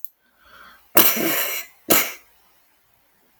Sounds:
Sniff